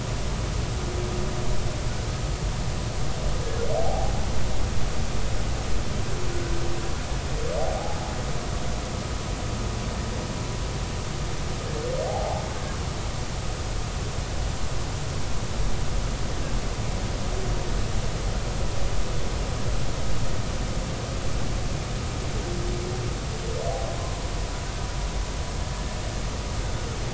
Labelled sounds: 3.8	4.1	humpback whale, 0.80 to 0.86 kHz
7.8	8.1	humpback whale, 0.80 to 0.90 kHz
12.1	12.4	humpback whale, 0.80 to 0.93 kHz
24.0	24.3	humpback whale, 0.96 to 1.1 kHz

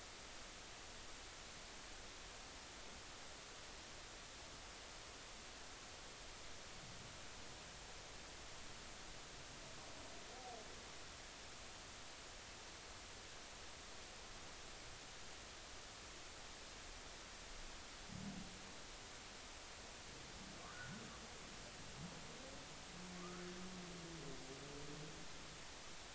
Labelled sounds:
20.7	21.0	humpback whale, 1.3 to 1.6 kHz
23.2	23.4	humpback whale, 1.1 to 1.5 kHz

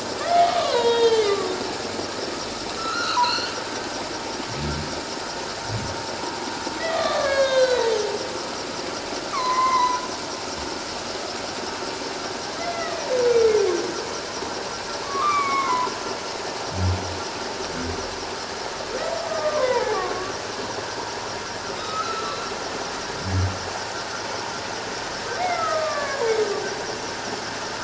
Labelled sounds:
0.2	1.6	humpback whale, 0.88 to 6.5 kHz
2.8	3.6	humpback whale, 0.88 to 4.7 kHz
6.8	7.9	humpback whale, 1.0 to 6.6 kHz
9.3	10.0	humpback whale, 0.91 to 2.4 kHz
12.6	13.0	humpback whale, 1.8 to 2.1 kHz
15.0	15.9	humpback whale, 0.91 to 2.5 kHz
19.3	20.3	humpback whale, 0.78 to 1.3 kHz
21.8	22.4	humpback whale, 1.2 to 1.4 kHz
25.4	26.3	humpback whale, 0.88 to 2.2 kHz

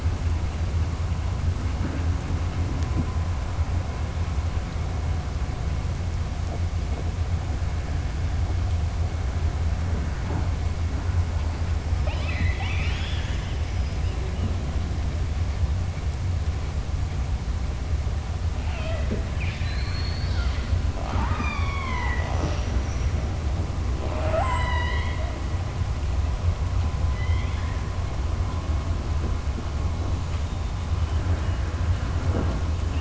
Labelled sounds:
11.9	13.6	killer whale, southern resident, 0.65 to 6.9 kHz
19.2	20.6	killer whale, southern resident, 1.4 to 5.2 kHz
27.1	27.8	killer whale, southern resident, 1.7 to 4.2 kHz

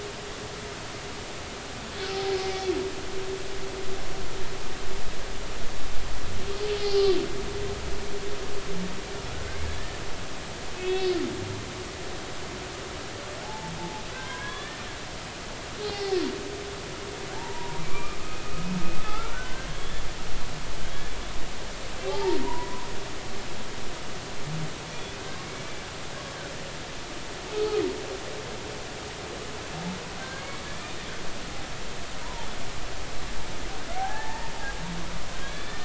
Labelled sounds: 6.8	7.2	humpback whale, 4.5 to 5.1 kHz
9.3	9.6	humpback whale, 1.3 to 1.6 kHz
10.7	11.1	humpback whale, 2.5 to 3.8 kHz
13.4	14.8	humpback whale, 0.80 to 1.9 kHz
15.8	16.2	humpback whale, 0.80 to 4.6 kHz
17.3	18.6	humpback whale, 0.83 to 2.6 kHz
19.0	20.0	humpback whale, 1.2 to 3.5 kHz
22.1	22.9	humpback whale, 0.80 to 1.1 kHz
27.5	27.8	humpback whale, 1.2 to 1.3 kHz
30.2	30.9	humpback whale, 1.5 to 2.3 kHz
32.2	32.5	humpback whale, 0.83 to 1.1 kHz
34.0	34.5	humpback whale, 0.80 to 1.9 kHz
35.4	35.8	humpback whale, 1.6 to 3.6 kHz

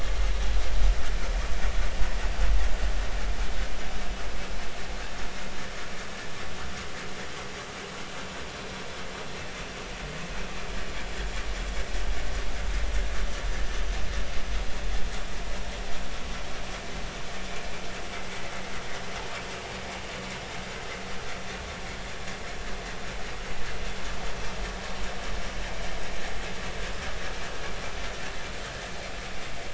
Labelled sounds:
13.6	13.9	vessel noise, 5.9 to 6.1 kHz

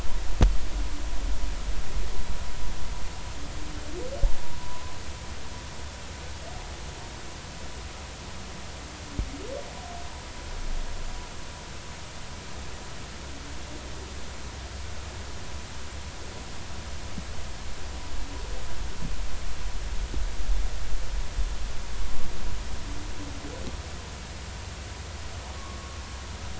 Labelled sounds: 4.6	5.0	humpback whale, 0.93 to 1.1 kHz
25.5	26.0	humpback whale, 0.99 to 1.2 kHz

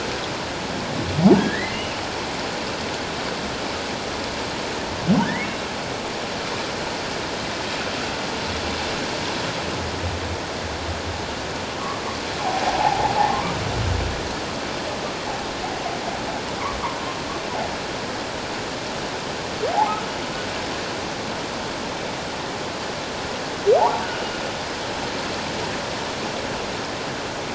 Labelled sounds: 1.4	2.0	humpback whale, 1.6 to 3.0 kHz
5.2	5.5	humpback whale, 1.4 to 2.3 kHz
12.6	13.2	humpback whale, 0.78 to 0.94 kHz
19.7	20.0	humpback whale, 0.78 to 1.0 kHz
23.8	24.1	humpback whale, 0.78 to 1.2 kHz

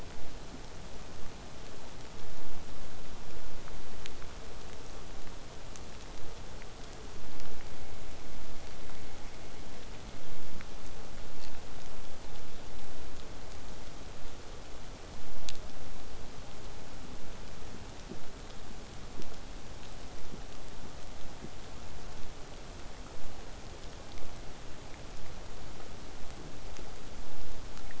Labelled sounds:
17.1	22.1	vessel noise, 0 to 8.0 kHz

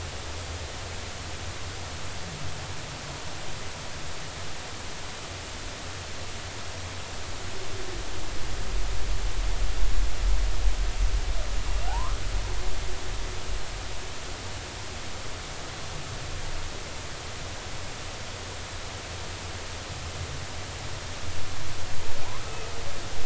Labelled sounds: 11.9	12.2	humpback whale, 0.80 to 1.4 kHz

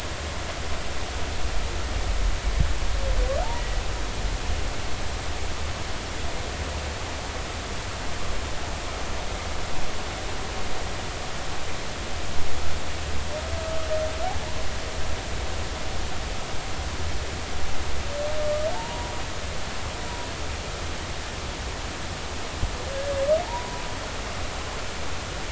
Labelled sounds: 13.6	13.9	humpback whale, 1.2 to 1.3 kHz
18.7	19.1	humpback whale, 0.83 to 1.0 kHz
22.9	23.8	humpback whale, 0.83 to 1.7 kHz

